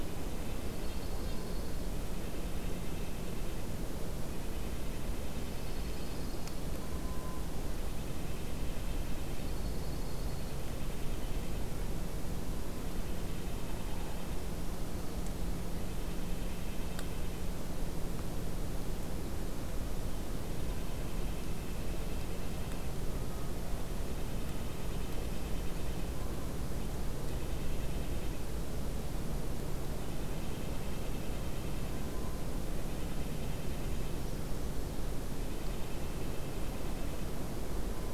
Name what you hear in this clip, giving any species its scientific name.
Sitta canadensis, Junco hyemalis